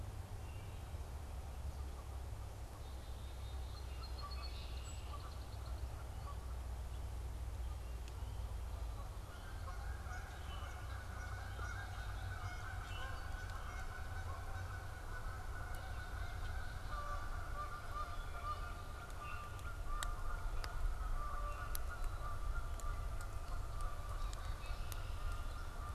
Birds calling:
Song Sparrow (Melospiza melodia), Black-capped Chickadee (Poecile atricapillus), Canada Goose (Branta canadensis), Common Grackle (Quiscalus quiscula)

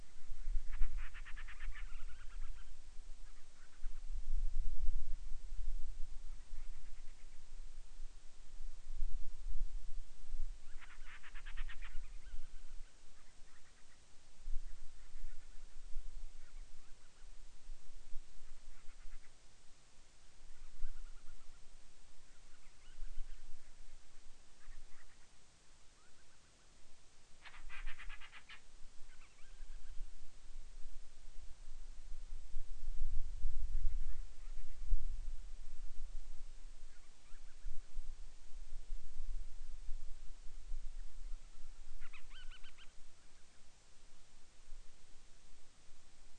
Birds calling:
Band-rumped Storm-Petrel (Hydrobates castro)

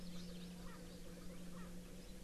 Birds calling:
Erckel's Francolin (Pternistis erckelii)

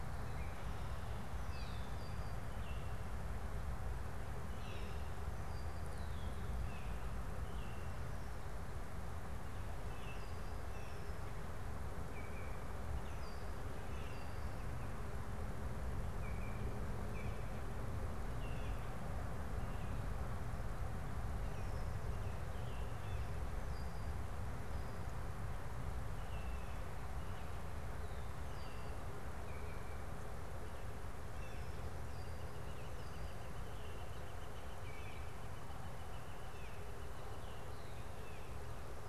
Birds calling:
Red-winged Blackbird (Agelaius phoeniceus), Baltimore Oriole (Icterus galbula), Northern Flicker (Colaptes auratus), Blue Jay (Cyanocitta cristata)

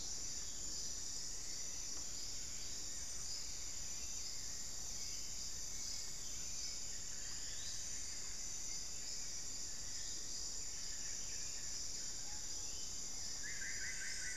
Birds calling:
Screaming Piha (Lipaugus vociferans), Solitary Black Cacique (Cacicus solitarius), Plumbeous Antbird (Myrmelastes hyperythrus)

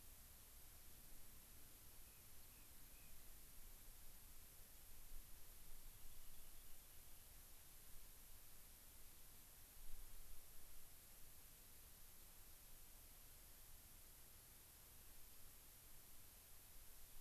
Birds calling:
Gray-crowned Rosy-Finch (Leucosticte tephrocotis), Rock Wren (Salpinctes obsoletus)

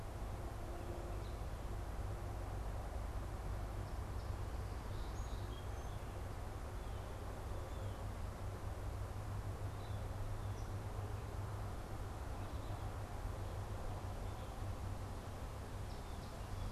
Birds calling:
Song Sparrow (Melospiza melodia), Blue Jay (Cyanocitta cristata)

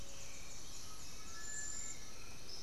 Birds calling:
Black-billed Thrush (Turdus ignobilis), Cinereous Tinamou (Crypturellus cinereus), Undulated Tinamou (Crypturellus undulatus)

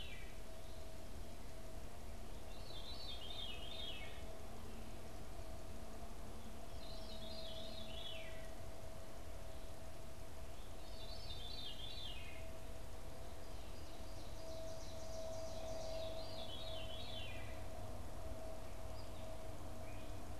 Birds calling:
Veery (Catharus fuscescens), Ovenbird (Seiurus aurocapilla)

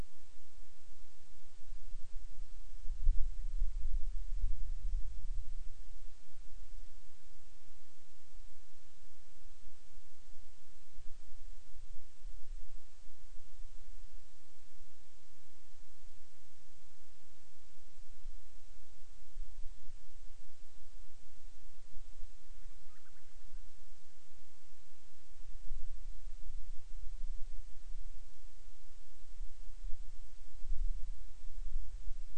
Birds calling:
Band-rumped Storm-Petrel (Hydrobates castro)

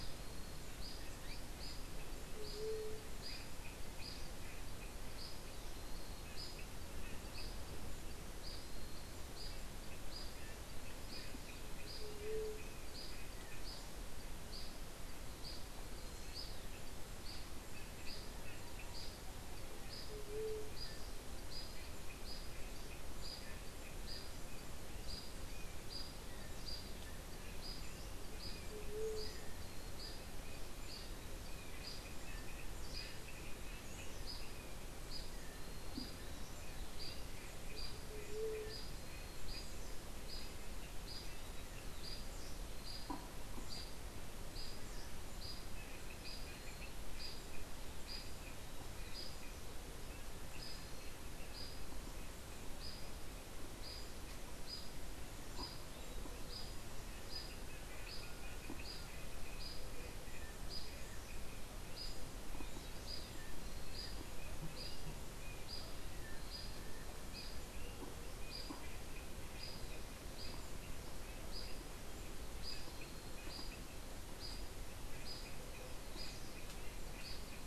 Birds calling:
White-tipped Dove (Leptotila verreauxi), unidentified bird

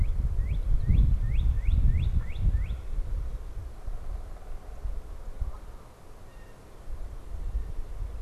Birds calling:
Blue Jay (Cyanocitta cristata), Canada Goose (Branta canadensis), Northern Cardinal (Cardinalis cardinalis), unidentified bird

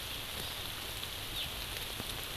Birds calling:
Hawaii Amakihi (Chlorodrepanis virens)

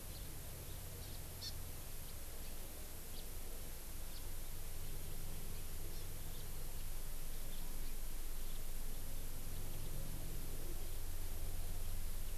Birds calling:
House Finch (Haemorhous mexicanus), Hawaii Amakihi (Chlorodrepanis virens)

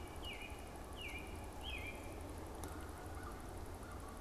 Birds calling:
American Robin (Turdus migratorius), American Crow (Corvus brachyrhynchos), Canada Goose (Branta canadensis)

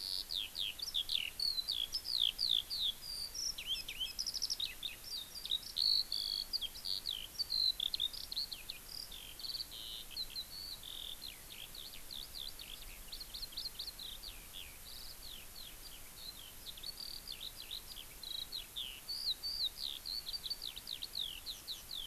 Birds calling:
Eurasian Skylark (Alauda arvensis)

